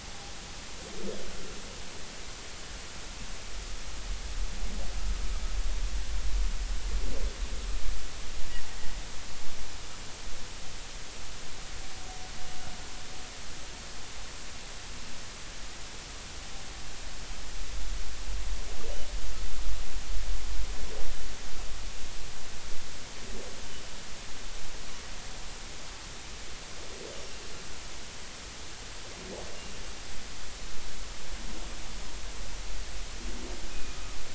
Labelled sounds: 33.7	34.0	humpback whale, 2.4 to 2.6 kHz

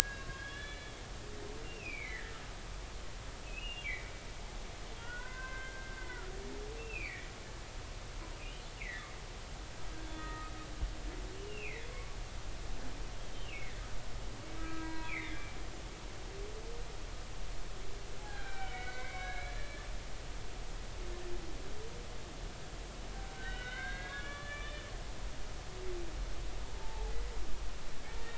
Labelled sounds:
0.3	1.3	humpback whale, 1.6 to 4.0 kHz
1.6	2.4	humpback whale, 1.6 to 2.9 kHz
3.5	4.1	humpback whale, 1.9 to 2.9 kHz
5.0	7.3	humpback whale, 0.93 to 2.8 kHz
8.8	9.1	humpback whale, 1.7 to 2.9 kHz
10.0	10.5	humpback whale, 1.2 to 3.5 kHz
11.3	12.2	humpback whale, 1.0 to 3.1 kHz
13.4	13.8	humpback whale, 1.8 to 2.9 kHz
14.6	15.4	humpback whale, 0.90 to 2.7 kHz
18.2	19.9	humpback whale, 0.80 to 4.2 kHz
23.3	25.9	humpback whale, 1.1 to 3.8 kHz
26.8	27.1	humpback whale, 0.80 to 0.96 kHz

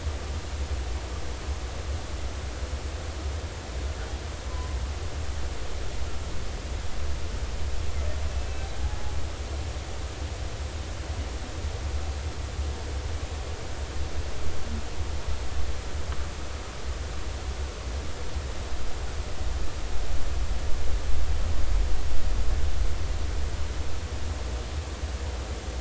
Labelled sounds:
4.5	4.8	humpback whale, 0.96 to 1.1 kHz
8.4	8.6	humpback whale, 2.6 to 2.7 kHz

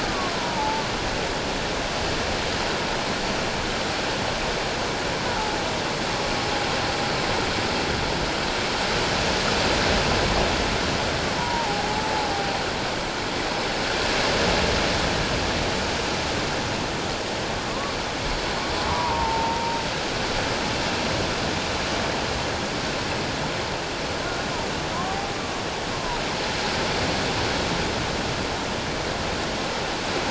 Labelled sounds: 0.0	0.8	humpback whale, 0.81 to 1.3 kHz
11.4	12.3	humpback whale, 0.78 to 1.0 kHz
18.9	19.8	humpback whale, 0.84 to 1.2 kHz
25.0	25.6	humpback whale, 0.78 to 1.2 kHz

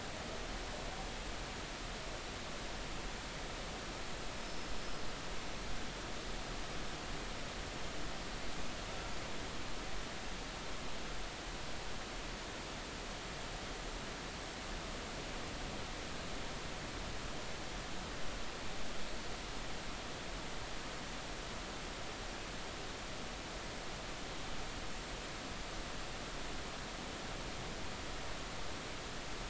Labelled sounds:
4.3	4.7	killer whale, Bigg's (transient), 5.1 to 5.3 kHz

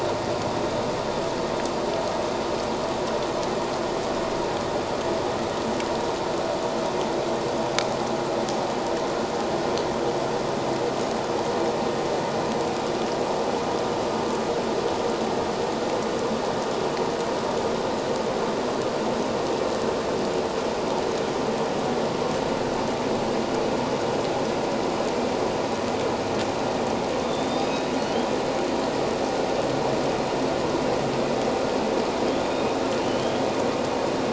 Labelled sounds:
27.2	28.3	humpback whale, 2.8 to 5.1 kHz
33.0	33.5	humpback whale, 2.9 to 3.4 kHz

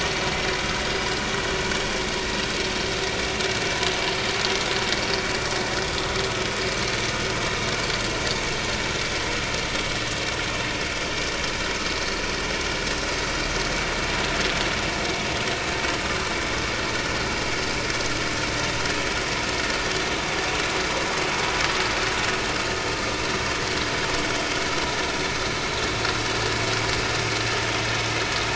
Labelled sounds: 0.9	1.2	vessel noise, 4.8 to 5.1 kHz

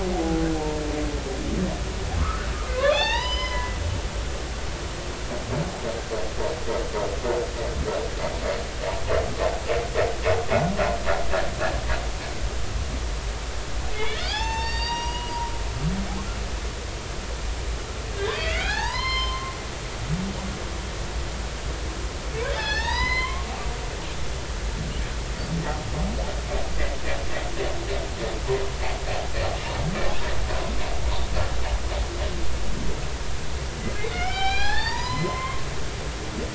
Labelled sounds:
2.2	3.8	humpback whale, 0.80 to 6.6 kHz
13.9	15.3	humpback whale, 0.80 to 7.4 kHz
18.1	19.5	humpback whale, 0.80 to 5.3 kHz
22.5	24.1	humpback whale, 0.83 to 5.4 kHz
34.0	35.6	humpback whale, 0.80 to 6.0 kHz

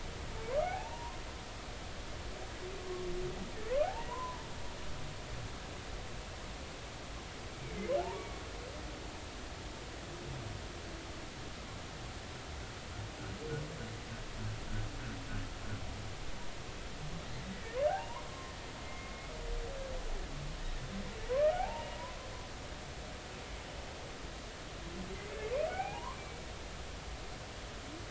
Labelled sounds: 0.6	1.2	humpback whale, 0.80 to 1.1 kHz
3.8	4.5	humpback whale, 0.80 to 1.1 kHz
8.0	8.4	humpback whale, 0.80 to 2.3 kHz
17.9	19.1	humpback whale, 0.80 to 2.2 kHz
21.3	22.1	humpback whale, 0.80 to 2.9 kHz
25.1	26.2	humpback whale, 0.80 to 2.7 kHz

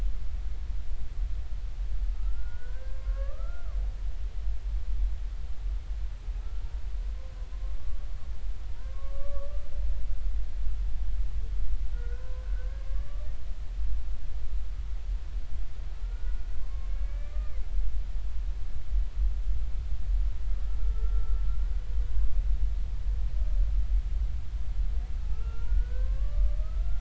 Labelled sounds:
2.1	3.8	humpback whale, 0.99 to 1.8 kHz
8.7	9.6	humpback whale, 0.90 to 1.2 kHz
11.9	13.1	humpback whale, 0.96 to 1.8 kHz
13.8	14.3	humpback whale, 1.1 to 1.2 kHz
16.0	16.4	humpback whale, 1.3 to 1.5 kHz
16.7	17.6	humpback whale, 1.1 to 2.5 kHz
20.8	22.4	humpback whale, 0.99 to 1.5 kHz
25.3	26.9	humpback whale, 0.99 to 2.9 kHz

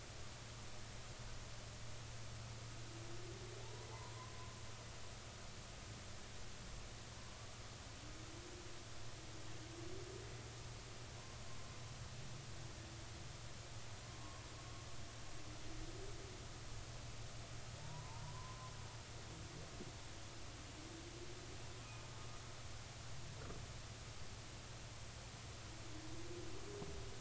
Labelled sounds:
3.6	4.3	humpback whale, 0.80 to 1.1 kHz
17.8	18.7	humpback whale, 0.83 to 1.1 kHz
21.8	22.1	humpback whale, 2.4 to 2.5 kHz

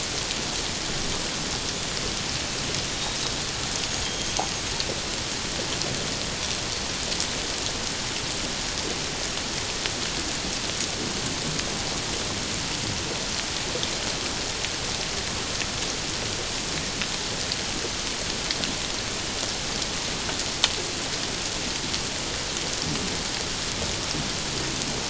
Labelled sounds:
2.9	4.6	killer whale, 3.1 to 6.6 kHz

